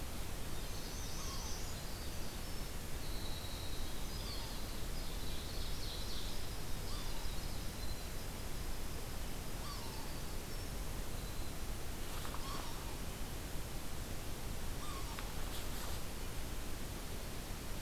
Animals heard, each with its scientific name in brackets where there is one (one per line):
Yellow-bellied Sapsucker (Sphyrapicus varius)
Ovenbird (Seiurus aurocapilla)
Northern Parula (Setophaga americana)
Winter Wren (Troglodytes hiemalis)